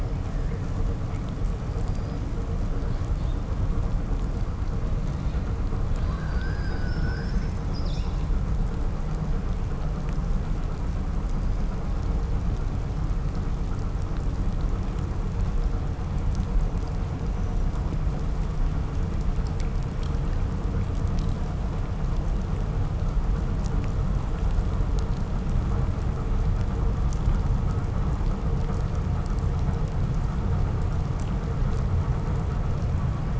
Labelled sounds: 1.6	2.3	killer whale, southern resident, 3.9 to 6.2 kHz
5.9	8.3	killer whale, southern resident, 0.87 to 7.8 kHz

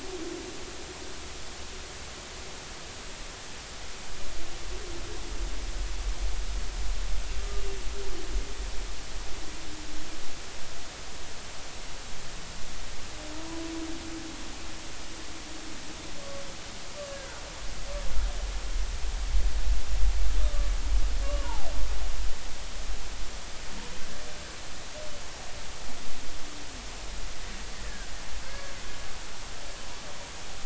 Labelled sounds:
7.4	7.6	humpback whale, 1.15 to 1.25 kHz
17.1	17.4	humpback whale, 1.4 to 1.7 kHz
21.2	21.7	humpback whale, 0.80 to 1.2 kHz
27.7	28.7	humpback whale, 1.4 to 1.9 kHz

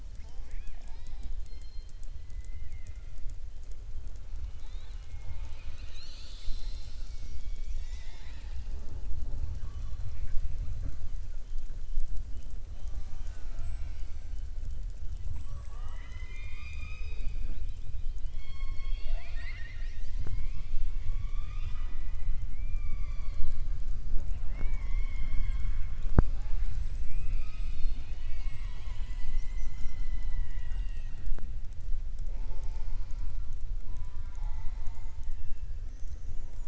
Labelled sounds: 2.3	3.0	killer whale, southern resident, 1.4 to 3.0 kHz
18.2	20.6	killer whale, southern resident, 0.65 to 6.4 kHz
33.8	35.7	killer whale, southern resident, 0.66 to 4.3 kHz

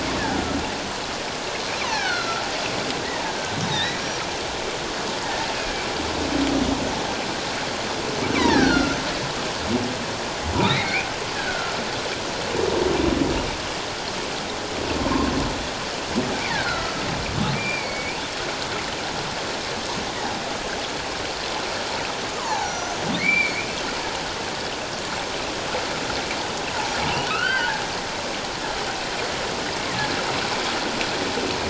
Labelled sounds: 1.8	2.4	humpback whale, 0.78 to 4.5 kHz
3.7	4.2	humpback whale, 1.7 to 5.8 kHz
8.3	9.0	humpback whale, 0.78 to 5.8 kHz
10.6	11.1	humpback whale, 1.8 to 2.6 kHz
11.3	11.8	humpback whale, 1.3 to 1.8 kHz
15.0	15.3	humpback whale, 0.91 to 1.1 kHz
16.5	18.2	humpback whale, 1.2 to 2.5 kHz
22.3	23.7	humpback whale, 0.78 to 6.1 kHz
26.7	27.0	humpback whale, 0.78 to 1.0 kHz
27.3	27.8	humpback whale, 1.2 to 3.2 kHz

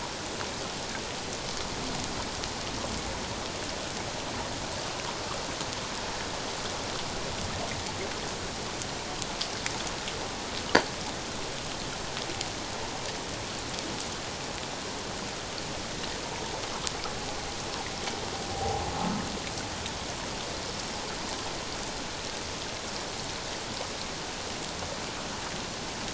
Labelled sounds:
18.5	18.8	humpback whale, 0.78 to 0.84 kHz

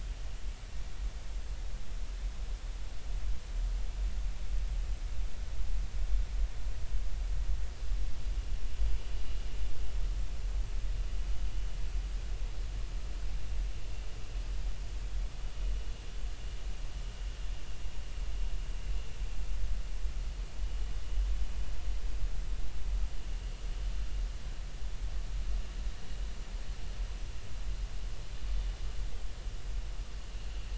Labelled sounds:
8.9	9.2	vessel noise, 2.9 to 3.0 kHz

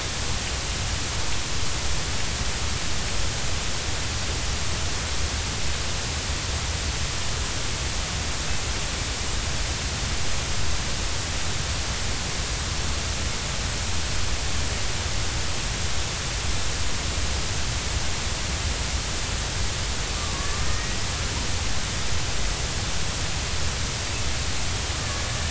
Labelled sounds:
20.6	21.0	killer whale, Bigg's (transient), 1.8 to 2.0 kHz

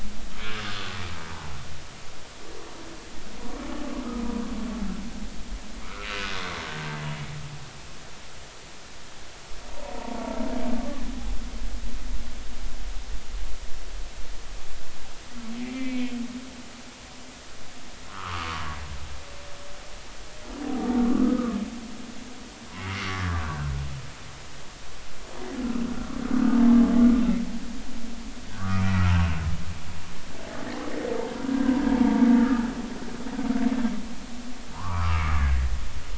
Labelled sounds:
0.6	0.9	humpback whale, 1.4 to 1.7 kHz
6.0	6.2	humpback whale, 2.7 to 2.8 kHz
9.8	10.2	humpback whale, 0.86 to 1.0 kHz
15.6	16.1	humpback whale, 2.0 to 2.6 kHz
18.1	18.8	humpback whale, 0.93 to 1.5 kHz
21.2	21.6	humpback whale, 1.1 to 1.3 kHz
23.0	24.4	humpback whale, 1.1 to 1.8 kHz
28.5	29.0	humpback whale, 1.1 to 2.5 kHz
32.0	32.7	humpback whale, 0.86 to 1.8 kHz
34.7	35.6	humpback whale, 0.83 to 1.8 kHz

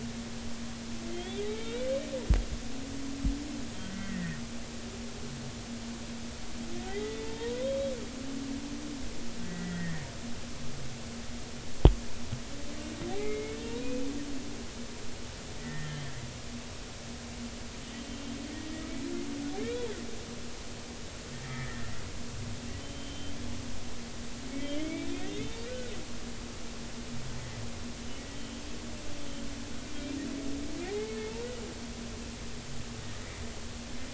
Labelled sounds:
1.1	1.9	humpback whale, 1.3 to 3.9 kHz
3.8	4.4	humpback whale, 1.5 to 2.0 kHz
6.9	7.7	humpback whale, 0.86 to 3.6 kHz
9.4	10.1	humpback whale, 1.7 to 2.1 kHz
13.1	14.0	humpback whale, 1.8 to 2.6 kHz
15.6	16.1	humpback whale, 1.6 to 3.3 kHz
19.6	19.8	humpback whale, 2.1 to 2.5 kHz
21.5	21.9	humpback whale, 1.7 to 2.2 kHz
22.8	23.3	humpback whale, 3.0 to 3.2 kHz
24.8	25.9	humpback whale, 1.4 to 3.6 kHz
28.3	28.6	humpback whale, 2.9 to 3.2 kHz
30.9	31.1	humpback whale, 0.80 to 0.93 kHz

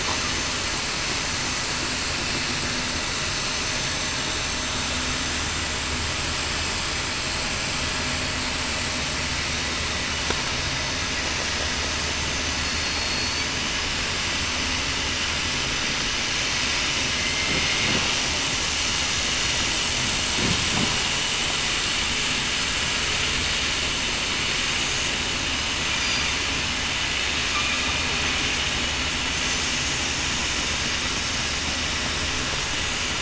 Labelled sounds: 12.6	13.5	killer whale, southern resident, 4.3 to 4.5 kHz
17.1	17.5	killer whale, southern resident, 2.0 to 2.1 kHz

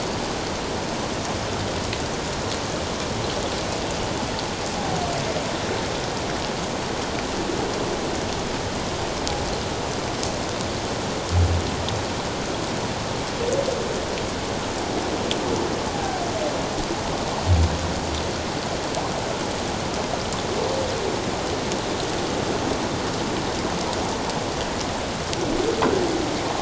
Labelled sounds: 15.9	16.2	humpback whale, 0.78 to 0.84 kHz

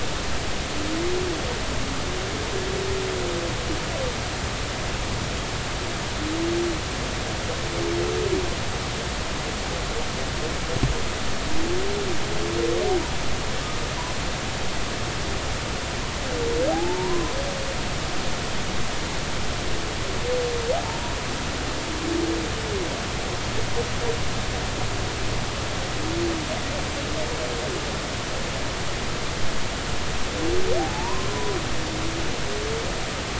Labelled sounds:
16.7	17.3	humpback whale, 0.80 to 1.1 kHz
30.8	31.3	humpback whale, 0.80 to 1.2 kHz

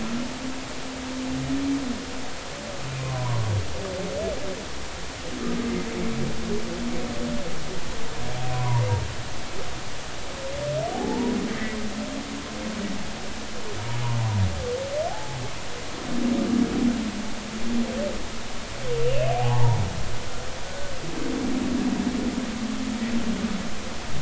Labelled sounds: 3.0	3.5	humpback whale, 0.93 to 1.2 kHz
8.5	8.9	humpback whale, 0.90 to 1.2 kHz
10.9	11.8	humpback whale, 0.80 to 2.1 kHz
15.1	15.4	humpback whale, 0.80 to 0.90 kHz
19.0	19.8	humpback whale, 0.80 to 2.9 kHz
20.6	20.9	humpback whale, 1.4 to 1.5 kHz

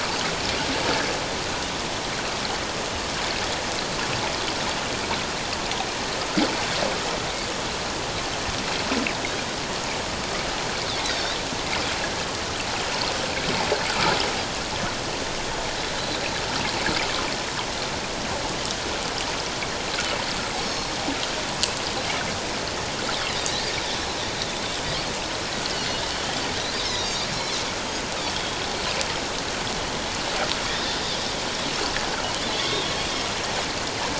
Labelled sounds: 11.0	11.4	Pacific white-sided dolphin, 3.5 to 4.1 kHz
20.6	20.9	Pacific white-sided dolphin, 4.2 to 4.5 kHz
23.3	23.6	Pacific white-sided dolphin, 3.6 to 5.2 kHz
25.8	26.0	Pacific white-sided dolphin, 4.2 to 4.5 kHz
26.7	27.6	Pacific white-sided dolphin, 3.6 to 5.9 kHz
28.3	28.6	Pacific white-sided dolphin, 3.1 to 3.4 kHz
30.7	31.0	Pacific white-sided dolphin, 3.3 to 3.8 kHz
32.5	32.9	Pacific white-sided dolphin, 3.1 to 3.8 kHz

